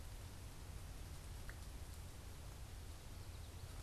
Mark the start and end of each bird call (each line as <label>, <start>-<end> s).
Common Yellowthroat (Geothlypis trichas), 2.8-3.8 s